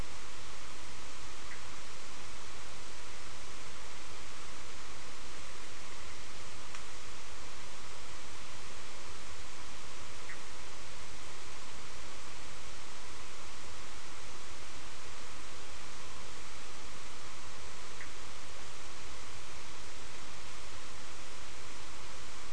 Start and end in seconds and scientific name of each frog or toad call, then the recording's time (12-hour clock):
1.4	1.7	Boana bischoffi
10.2	10.6	Boana bischoffi
17.9	18.2	Boana bischoffi
4:30am